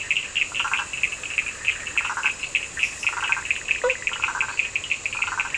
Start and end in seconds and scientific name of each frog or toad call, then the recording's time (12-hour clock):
0.0	4.3	Boana bischoffi
0.0	5.5	Boana prasina
0.0	5.5	Sphaenorhynchus surdus
3.7	4.3	Boana faber
11:00pm